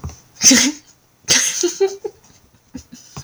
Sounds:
Laughter